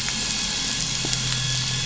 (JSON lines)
{"label": "anthrophony, boat engine", "recorder": "SoundTrap 500"}